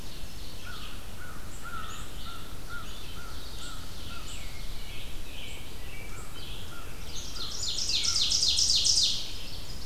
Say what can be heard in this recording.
Ovenbird, Red-eyed Vireo, American Crow, American Robin